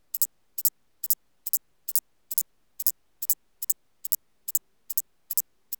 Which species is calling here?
Thyreonotus corsicus